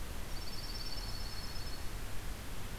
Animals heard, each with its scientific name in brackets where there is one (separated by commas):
Dark-eyed Junco (Junco hyemalis)